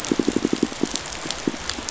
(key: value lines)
label: biophony, pulse
recorder: SoundTrap 500